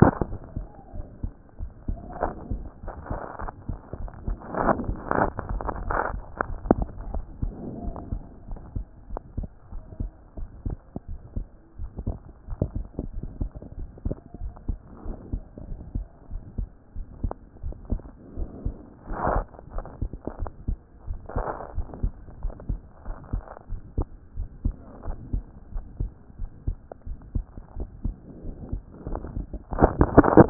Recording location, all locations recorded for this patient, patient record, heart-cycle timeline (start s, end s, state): pulmonary valve (PV)
aortic valve (AV)+pulmonary valve (PV)+tricuspid valve (TV)+mitral valve (MV)
#Age: Child
#Sex: Male
#Height: 127.0 cm
#Weight: 25.5 kg
#Pregnancy status: False
#Murmur: Absent
#Murmur locations: nan
#Most audible location: nan
#Systolic murmur timing: nan
#Systolic murmur shape: nan
#Systolic murmur grading: nan
#Systolic murmur pitch: nan
#Systolic murmur quality: nan
#Diastolic murmur timing: nan
#Diastolic murmur shape: nan
#Diastolic murmur grading: nan
#Diastolic murmur pitch: nan
#Diastolic murmur quality: nan
#Outcome: Abnormal
#Campaign: 2014 screening campaign
0.00	0.26	unannotated
0.26	0.32	diastole
0.32	0.38	S1
0.38	0.56	systole
0.56	0.68	S2
0.68	0.96	diastole
0.96	1.06	S1
1.06	1.20	systole
1.20	1.32	S2
1.32	1.60	diastole
1.60	1.72	S1
1.72	1.88	systole
1.88	2.00	S2
2.00	2.22	diastole
2.22	2.36	S1
2.36	2.50	systole
2.50	2.62	S2
2.62	2.86	diastole
2.86	2.94	S1
2.94	3.08	systole
3.08	3.20	S2
3.20	3.42	diastole
3.42	3.54	S1
3.54	3.68	systole
3.68	3.78	S2
3.78	4.00	diastole
4.00	4.12	S1
4.12	4.24	systole
4.24	4.38	S2
4.38	4.60	diastole
4.60	4.78	S1
4.78	4.86	systole
4.86	4.98	S2
4.98	5.20	diastole
5.20	5.34	S1
5.34	5.48	systole
5.48	5.62	S2
5.62	5.86	diastole
5.86	6.02	S1
6.02	6.12	systole
6.12	6.24	S2
6.24	6.48	diastole
6.48	6.62	S1
6.62	6.72	systole
6.72	6.86	S2
6.86	7.08	diastole
7.08	7.24	S1
7.24	7.40	systole
7.40	7.54	S2
7.54	7.82	diastole
7.82	7.96	S1
7.96	8.10	systole
8.10	8.22	S2
8.22	8.50	diastole
8.50	8.60	S1
8.60	8.74	systole
8.74	8.86	S2
8.86	9.12	diastole
9.12	9.22	S1
9.22	9.36	systole
9.36	9.48	S2
9.48	9.74	diastole
9.74	9.82	S1
9.82	9.98	systole
9.98	10.12	S2
10.12	10.38	diastole
10.38	10.48	S1
10.48	10.64	systole
10.64	10.78	S2
10.78	11.10	diastole
11.10	11.20	S1
11.20	11.34	systole
11.34	11.48	S2
11.48	11.80	diastole
11.80	11.90	S1
11.90	12.06	systole
12.06	12.20	S2
12.20	12.50	diastole
12.50	12.60	S1
12.60	12.74	systole
12.74	12.86	S2
12.86	13.14	diastole
13.14	13.24	S1
13.24	13.38	systole
13.38	13.50	S2
13.50	13.78	diastole
13.78	13.90	S1
13.90	14.04	systole
14.04	14.16	S2
14.16	14.42	diastole
14.42	14.54	S1
14.54	14.66	systole
14.66	14.78	S2
14.78	15.06	diastole
15.06	15.18	S1
15.18	15.32	systole
15.32	15.44	S2
15.44	15.68	diastole
15.68	15.80	S1
15.80	15.94	systole
15.94	16.06	S2
16.06	16.32	diastole
16.32	16.42	S1
16.42	16.56	systole
16.56	16.68	S2
16.68	16.96	diastole
16.96	17.06	S1
17.06	17.20	systole
17.20	17.36	S2
17.36	17.64	diastole
17.64	17.76	S1
17.76	17.88	systole
17.88	18.04	S2
18.04	18.36	diastole
18.36	18.50	S1
18.50	18.64	systole
18.64	18.76	S2
18.76	19.08	diastole
19.08	19.20	S1
19.20	19.30	systole
19.30	19.46	S2
19.46	19.74	diastole
19.74	19.86	S1
19.86	20.00	systole
20.00	20.10	S2
20.10	20.40	diastole
20.40	20.52	S1
20.52	20.64	systole
20.64	20.80	S2
20.80	21.08	diastole
21.08	21.22	S1
21.22	21.34	systole
21.34	21.48	S2
21.48	21.76	diastole
21.76	21.88	S1
21.88	22.02	systole
22.02	22.14	S2
22.14	22.42	diastole
22.42	22.54	S1
22.54	22.68	systole
22.68	22.80	S2
22.80	23.08	diastole
23.08	23.18	S1
23.18	23.32	systole
23.32	23.44	S2
23.44	23.70	diastole
23.70	23.80	S1
23.80	23.94	systole
23.94	24.08	S2
24.08	24.38	diastole
24.38	24.48	S1
24.48	24.66	systole
24.66	24.80	S2
24.80	25.08	diastole
25.08	25.20	S1
25.20	25.32	systole
25.32	25.46	S2
25.46	25.74	diastole
25.74	25.86	S1
25.86	25.98	systole
25.98	26.12	S2
26.12	26.40	diastole
26.40	26.50	S1
26.50	26.66	systole
26.66	26.78	S2
26.78	27.06	diastole
27.06	27.18	S1
27.18	27.32	systole
27.32	27.48	S2
27.48	27.76	diastole
27.76	27.88	S1
27.88	28.00	systole
28.00	28.16	S2
28.16	28.44	diastole
28.44	28.56	S1
28.56	28.70	systole
28.70	28.84	S2
28.84	28.98	diastole
28.98	30.50	unannotated